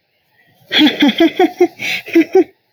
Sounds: Laughter